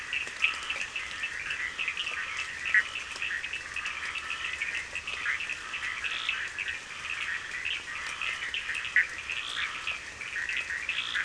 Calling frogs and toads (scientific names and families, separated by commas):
Boana bischoffi (Hylidae), Scinax perereca (Hylidae), Sphaenorhynchus surdus (Hylidae)